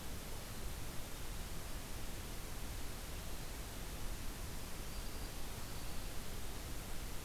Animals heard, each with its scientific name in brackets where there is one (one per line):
Black-throated Green Warbler (Setophaga virens)